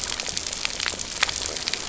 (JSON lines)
{"label": "biophony, stridulation", "recorder": "SoundTrap 300"}